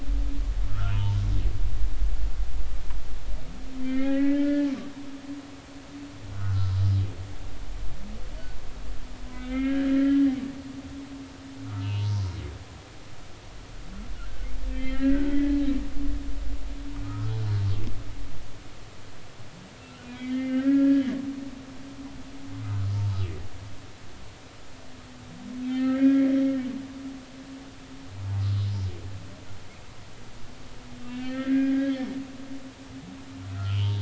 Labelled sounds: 0.7	1.2	humpback whale, 0.86 to 1.6 kHz
3.8	4.7	humpback whale, 1.3 to 2.6 kHz
6.3	6.7	humpback whale, 1.2 to 1.5 kHz
9.3	10.3	humpback whale, 1.3 to 3.2 kHz
11.7	12.2	humpback whale, 0.86 to 3.0 kHz
14.1	15.6	humpback whale, 1.3 to 2.8 kHz
17.0	17.3	humpback whale, 1.2 to 1.4 kHz
19.8	21.1	humpback whale, 1.3 to 3.2 kHz
25.7	26.3	humpback whale, 1.5 to 3.3 kHz
31.1	31.9	humpback whale, 1.2 to 3.4 kHz
33.5	34.0	humpback whale, 0.86 to 3.4 kHz

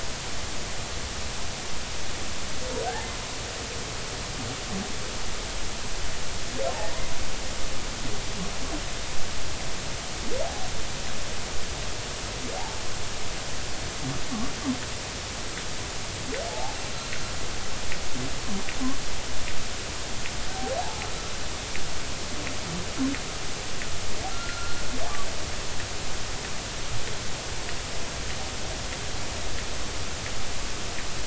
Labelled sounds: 2.8	3.1	humpback whale, 1.5 to 1.9 kHz
12.6	12.8	humpback whale, 0.80 to 0.99 kHz
16.5	16.7	humpback whale, 0.80 to 0.96 kHz
24.3	24.8	humpback whale, 1.3 to 1.5 kHz

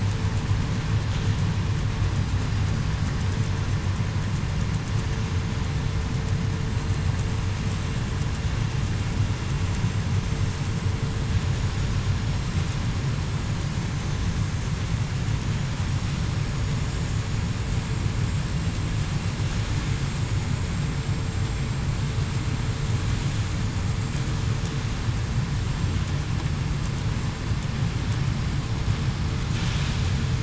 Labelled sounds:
16.7	17.2	vessel noise, 7.48 to 7.55 kHz

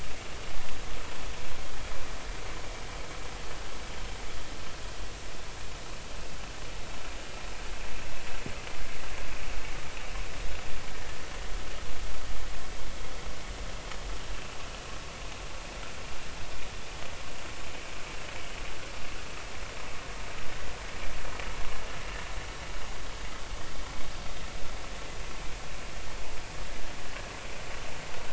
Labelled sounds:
14.3	14.6	vessel noise, 2.6 to 2.8 kHz

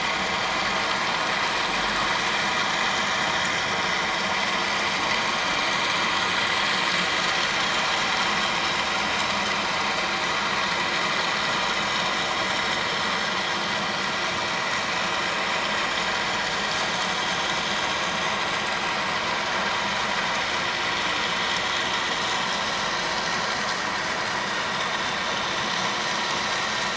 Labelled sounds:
1.4	1.6	vessel noise, 7.4 to 7.9 kHz
16.9	17.3	vessel noise, 6.1 to 6.4 kHz

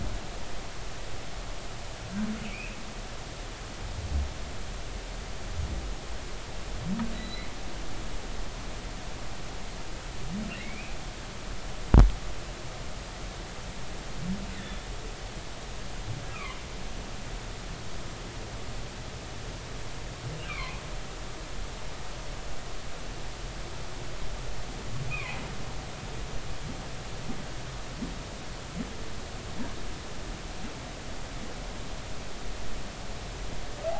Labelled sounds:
2.5	2.8	humpback whale, 2.2 to 2.8 kHz
7.1	7.5	humpback whale, 1.9 to 4.2 kHz
10.5	11.0	humpback whale, 1.8 to 2.7 kHz
14.5	14.8	humpback whale, 1.7 to 3.6 kHz
16.3	16.6	humpback whale, 2.0 to 2.7 kHz
20.5	20.8	humpback whale, 0.96 to 2.5 kHz
25.1	25.4	humpback whale, 2.0 to 2.6 kHz

